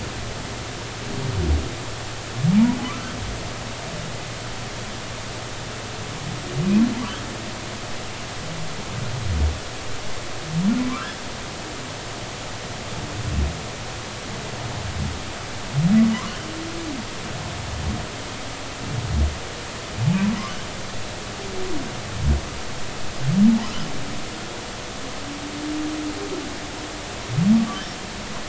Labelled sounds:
2.8	3.1	humpback whale, 0.96 to 1.4 kHz
10.8	11.1	humpback whale, 0.96 to 1.4 kHz
20.0	20.3	humpback whale, 0.80 to 1.0 kHz

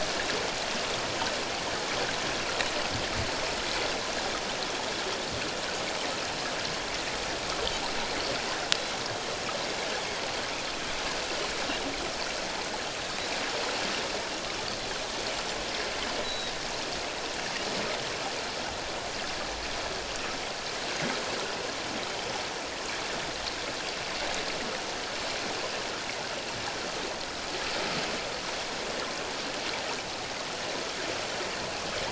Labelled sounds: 16.2	16.5	Pacific white-sided dolphin, 3.7 to 4.2 kHz

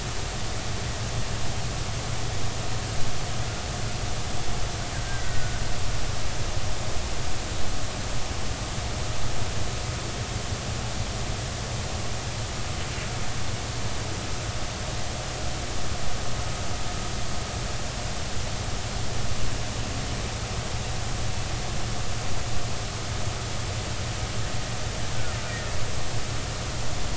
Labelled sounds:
5.2	5.6	killer whale, Bigg's (transient), 1.4 to 2.0 kHz
25.5	25.7	killer whale, Bigg's (transient), 1.8 to 2.0 kHz

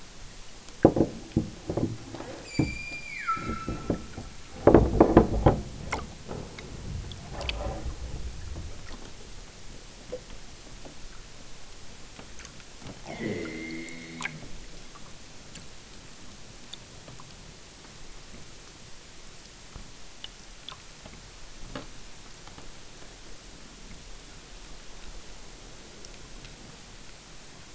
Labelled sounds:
2.4	4.0	killer whale, southern Alaska resident, 0.96 to 8.0 kHz
13.1	14.5	killer whale, southern Alaska resident, 0 to 6.9 kHz

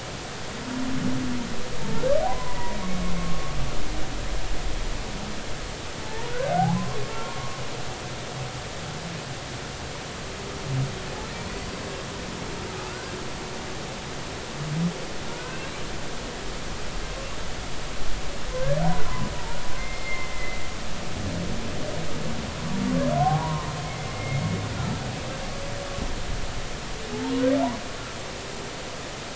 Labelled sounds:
2.3	3.5	humpback whale, 0.90 to 1.2 kHz
6.0	6.9	humpback whale, 0.80 to 1.1 kHz
7.2	7.5	humpback whale, 0.96 to 1.1 kHz
12.9	13.1	humpback whale, 1.2 to 1.7 kHz
15.3	15.8	humpback whale, 1.3 to 2.8 kHz
18.6	18.8	humpback whale, 1.5 to 1.8 kHz
19.8	20.6	humpback whale, 1.9 to 2.2 kHz
23.2	24.4	humpback whale, 0.80 to 2.2 kHz
24.8	25.0	humpback whale, 1.3 to 1.4 kHz

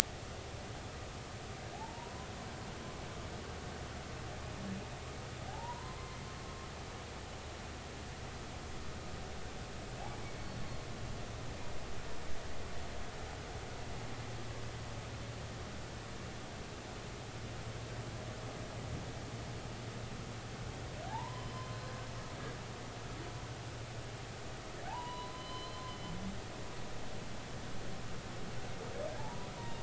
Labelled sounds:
1.7	2.3	humpback whale, 0.80 to 1.1 kHz
5.5	6.0	humpback whale, 0.80 to 1.1 kHz
10.4	10.7	humpback whale, 4.3 to 4.5 kHz
21.1	21.8	humpback whale, 0.80 to 5.2 kHz
24.9	25.9	humpback whale, 0.80 to 4.1 kHz
29.2	29.8	humpback whale, 0.83 to 1.0 kHz

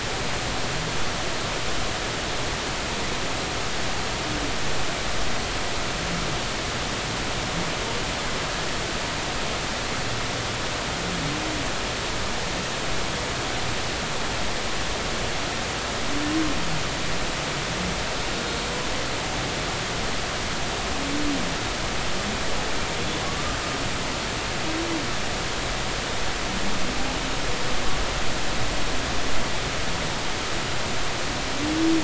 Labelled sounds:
23.3	23.6	humpback whale, 1.1 to 1.3 kHz

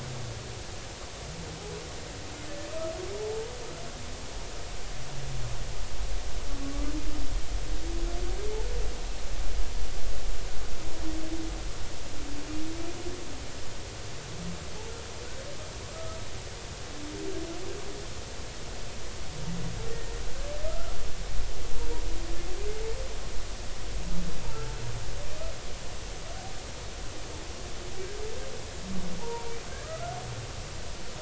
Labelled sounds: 3.2	3.5	humpback whale, 0.80 to 0.93 kHz
15.8	16.2	humpback whale, 0.96 to 1.3 kHz
19.9	21.0	humpback whale, 1.2 to 1.9 kHz
29.2	30.2	humpback whale, 0.80 to 1.5 kHz

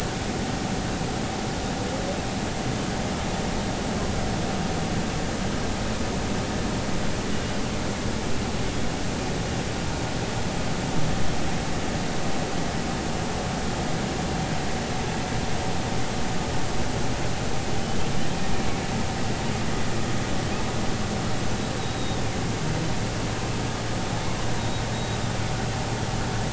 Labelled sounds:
7.3	7.6	humpback whale, 2.8 to 3.0 kHz
21.8	22.2	humpback whale, 3.6 to 4.0 kHz
24.6	25.2	humpback whale, 3.7 to 4.0 kHz

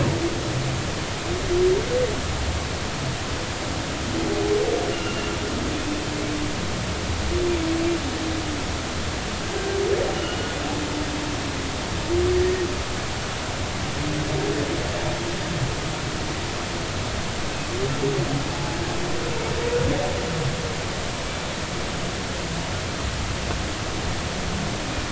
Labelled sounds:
5.7	6.3	humpback whale, 2.4 to 2.9 kHz
10.1	10.5	humpback whale, 2.8 to 3.0 kHz
18.5	18.8	humpback whale, 0.80 to 0.90 kHz

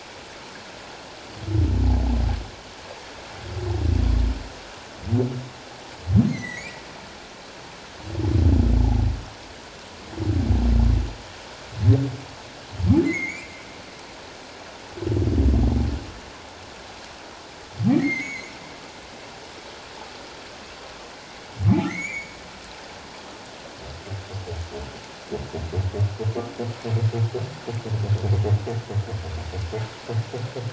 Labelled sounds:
6.2	6.8	humpback whale, 1.9 to 6.3 kHz
13.0	13.5	humpback whale, 1.9 to 7.3 kHz
17.9	18.5	humpback whale, 1.8 to 6.8 kHz
21.8	22.4	humpback whale, 1.8 to 7.1 kHz

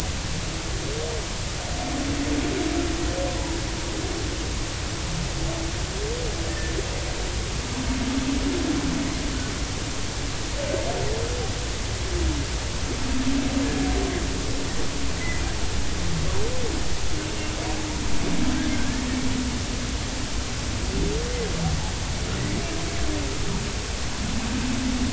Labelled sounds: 6.5	6.7	humpback whale, 1.7 to 1.9 kHz
18.6	19.0	humpback whale, 1.4 to 1.9 kHz

